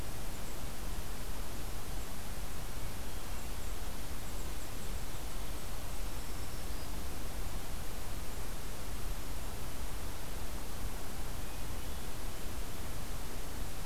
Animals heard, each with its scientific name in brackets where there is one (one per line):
Black-throated Green Warbler (Setophaga virens)